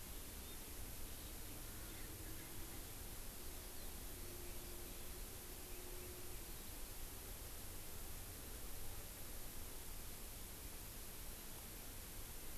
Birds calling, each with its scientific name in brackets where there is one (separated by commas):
Erckel's Francolin (Pternistis erckelii)